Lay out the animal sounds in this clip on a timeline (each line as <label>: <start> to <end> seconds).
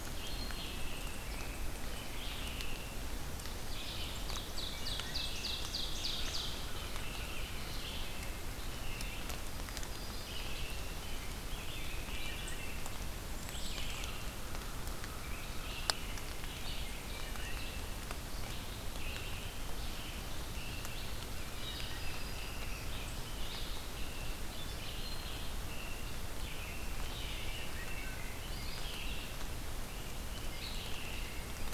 Red-eyed Vireo (Vireo olivaceus): 0.0 to 31.7 seconds
American Robin (Turdus migratorius): 0.7 to 3.1 seconds
Ovenbird (Seiurus aurocapilla): 4.0 to 6.5 seconds
Wood Thrush (Hylocichla mustelina): 4.6 to 5.6 seconds
American Robin (Turdus migratorius): 6.1 to 9.4 seconds
Yellow-rumped Warbler (Setophaga coronata): 9.4 to 10.8 seconds
American Robin (Turdus migratorius): 10.2 to 12.6 seconds
Wood Thrush (Hylocichla mustelina): 12.0 to 12.9 seconds
unidentified call: 13.2 to 14.1 seconds
American Crow (Corvus brachyrhynchos): 14.2 to 15.8 seconds
American Robin (Turdus migratorius): 15.2 to 18.0 seconds
Wood Thrush (Hylocichla mustelina): 17.1 to 17.5 seconds
American Robin (Turdus migratorius): 18.9 to 20.9 seconds
Wood Thrush (Hylocichla mustelina): 21.3 to 22.1 seconds
Yellow-rumped Warbler (Setophaga coronata): 21.4 to 22.9 seconds
American Robin (Turdus migratorius): 21.5 to 31.7 seconds
Wood Thrush (Hylocichla mustelina): 27.8 to 28.2 seconds
Yellow-rumped Warbler (Setophaga coronata): 31.2 to 31.7 seconds